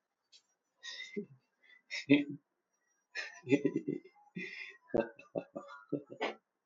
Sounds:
Laughter